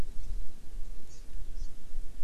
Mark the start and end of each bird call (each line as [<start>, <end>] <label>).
[1.07, 1.27] Hawaii Amakihi (Chlorodrepanis virens)
[1.57, 1.67] Hawaii Amakihi (Chlorodrepanis virens)